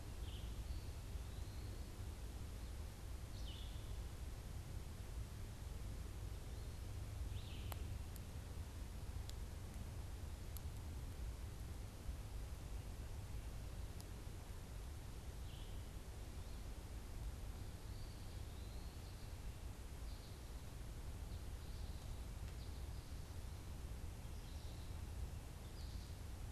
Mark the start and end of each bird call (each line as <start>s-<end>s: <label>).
0.0s-4.0s: Red-eyed Vireo (Vireo olivaceus)
0.4s-1.9s: Eastern Wood-Pewee (Contopus virens)
7.1s-7.9s: Red-eyed Vireo (Vireo olivaceus)
15.3s-15.8s: Red-eyed Vireo (Vireo olivaceus)
17.8s-19.0s: Eastern Wood-Pewee (Contopus virens)
19.7s-26.5s: American Goldfinch (Spinus tristis)